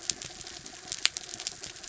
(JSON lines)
{"label": "anthrophony, mechanical", "recorder": "SoundTrap 300"}